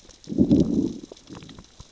{"label": "biophony, growl", "recorder": "SoundTrap 600 or HydroMoth"}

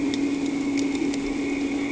{"label": "anthrophony, boat engine", "recorder": "HydroMoth"}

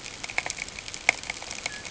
{"label": "ambient", "recorder": "HydroMoth"}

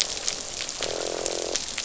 {"label": "biophony, croak", "recorder": "SoundTrap 500"}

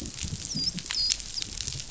{"label": "biophony, dolphin", "recorder": "SoundTrap 500"}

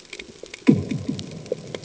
{"label": "anthrophony, bomb", "recorder": "HydroMoth"}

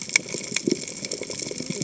{"label": "biophony, cascading saw", "recorder": "HydroMoth"}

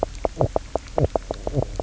{"label": "biophony, knock croak", "recorder": "SoundTrap 300"}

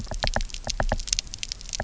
{"label": "biophony, knock", "recorder": "SoundTrap 300"}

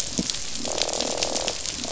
{"label": "biophony, croak", "recorder": "SoundTrap 500"}
{"label": "biophony", "recorder": "SoundTrap 500"}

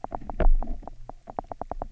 {"label": "biophony, knock", "recorder": "SoundTrap 300"}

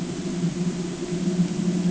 {"label": "ambient", "recorder": "HydroMoth"}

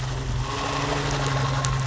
{"label": "anthrophony, boat engine", "recorder": "SoundTrap 500"}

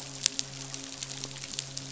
{"label": "biophony, midshipman", "recorder": "SoundTrap 500"}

